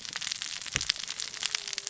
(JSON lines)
{"label": "biophony, cascading saw", "recorder": "SoundTrap 600 or HydroMoth"}